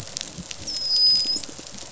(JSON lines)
{"label": "biophony, dolphin", "recorder": "SoundTrap 500"}
{"label": "biophony", "recorder": "SoundTrap 500"}